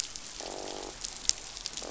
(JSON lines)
{"label": "biophony, croak", "recorder": "SoundTrap 500"}